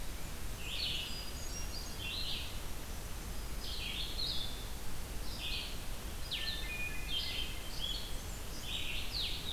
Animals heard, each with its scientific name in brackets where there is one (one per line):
Blue-headed Vireo (Vireo solitarius)
Red-eyed Vireo (Vireo olivaceus)
Blackburnian Warbler (Setophaga fusca)
Black-throated Green Warbler (Setophaga virens)
Hermit Thrush (Catharus guttatus)